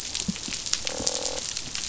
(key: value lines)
label: biophony, croak
recorder: SoundTrap 500